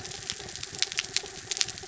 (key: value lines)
label: anthrophony, mechanical
recorder: SoundTrap 300